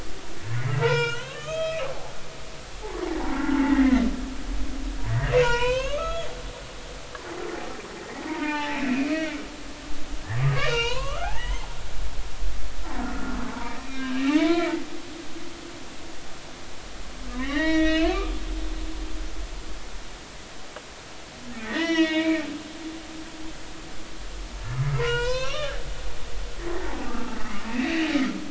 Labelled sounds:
0.7	1.8	humpback whale, 0.86 to 6.7 kHz
2.8	4.0	humpback whale, 0.80 to 2.1 kHz
5.1	6.3	humpback whale, 0.90 to 5.5 kHz
8.3	9.4	humpback whale, 0.80 to 2.8 kHz
10.5	11.7	humpback whale, 0.86 to 5.4 kHz
13.0	14.7	humpback whale, 0.83 to 3.8 kHz
17.3	18.8	humpback whale, 0.83 to 5.8 kHz
21.6	22.4	humpback whale, 0.93 to 5.7 kHz
25.0	25.7	humpback whale, 0.90 to 5.9 kHz
26.8	27.4	humpback whale, 0.80 to 1.4 kHz
27.7	28.1	humpback whale, 2.4 to 2.8 kHz

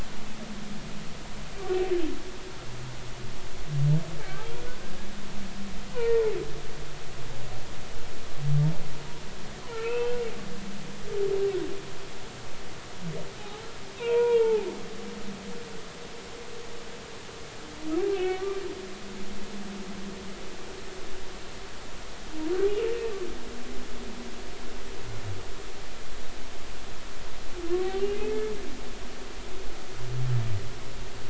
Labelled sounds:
4.2	4.8	humpback whale, 1.3 to 1.7 kHz
5.9	6.2	humpback whale, 0.86 to 1.1 kHz
9.7	10.2	humpback whale, 1.3 to 3.3 kHz
13.4	13.6	humpback whale, 0.80 to 0.90 kHz
14.0	14.7	humpback whale, 0.80 to 3.4 kHz
18.1	18.6	humpback whale, 1.1 to 2.8 kHz
28.1	28.3	humpback whale, 2.4 to 2.6 kHz

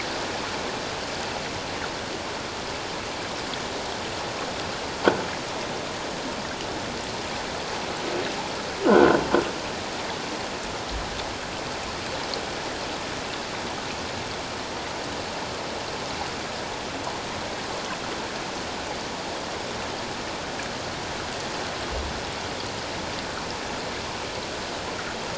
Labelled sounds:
8.9	9.2	croaking sound likely from a nearby submerged object, 1.3 to 1.6 kHz

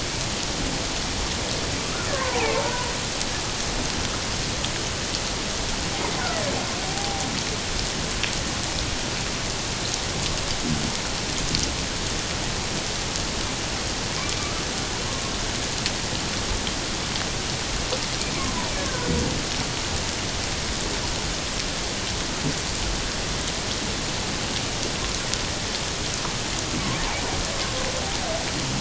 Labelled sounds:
2.1	2.9	killer whale, Bigg's (transient), 0.78 to 1.8 kHz
6.8	7.3	killer whale, Bigg's (transient), 0.78 to 0.84 kHz
18.7	19.1	killer whale, Bigg's (transient), 1.4 to 1.8 kHz

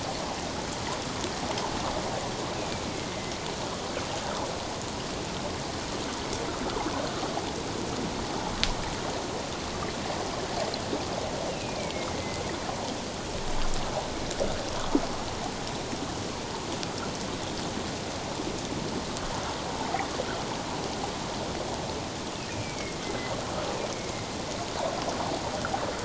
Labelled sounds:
2.6	3.3	killer whale, northern resident, A clan, AA subclan, A04 pod, 2.0 to 2.6 kHz
11.5	12.4	killer whale, northern resident, A clan, AA subclan, A04 pod, 2.0 to 2.9 kHz
22.5	23.0	killer whale, northern resident, A clan, AA subclan, A04 pod, 2.1 to 2.5 kHz
23.9	24.3	killer whale, northern resident, A clan, AA subclan, A04 pod, 2.0 to 2.3 kHz

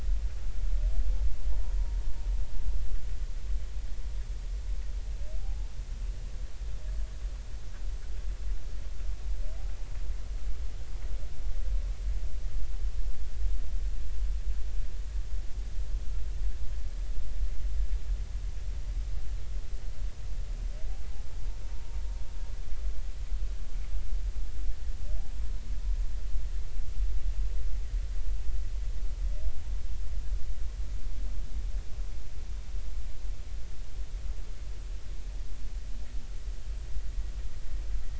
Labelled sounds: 5.4	5.7	humpback whale, 0.80 to 0.93 kHz
21.7	22.0	humpback whale, 0.90 to 0.99 kHz

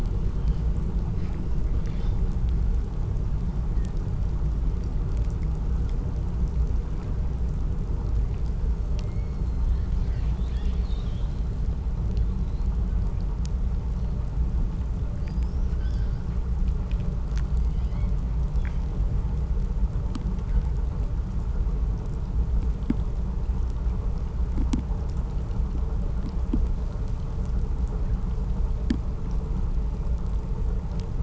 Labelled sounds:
8.5	11.5	killer whale, southern resident, 0.81 to 8.0 kHz
14.9	16.3	killer whale, southern resident, 2.2 to 7.6 kHz
17.3	18.3	killer whale, southern resident, 1.3 to 6.3 kHz

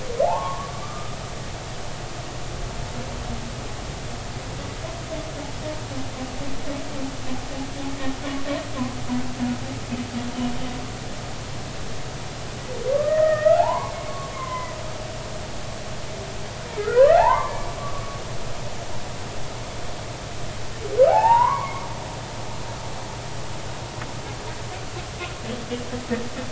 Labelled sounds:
0.2	1.2	humpback whale, 0.80 to 1.5 kHz
12.9	13.9	humpback whale, 0.80 to 2.0 kHz
14.3	14.8	humpback whale, 0.96 to 2.2 kHz
16.8	18.2	humpback whale, 0.80 to 2.1 kHz
21.1	21.9	humpback whale, 0.80 to 2.8 kHz

